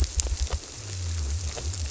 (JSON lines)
{"label": "biophony", "recorder": "SoundTrap 300"}